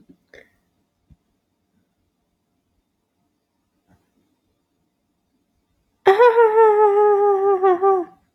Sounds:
Laughter